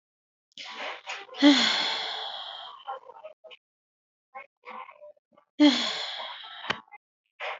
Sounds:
Sigh